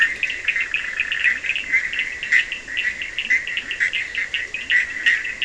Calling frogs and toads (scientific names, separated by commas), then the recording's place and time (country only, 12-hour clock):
Leptodactylus latrans, Sphaenorhynchus surdus
Brazil, 4:00am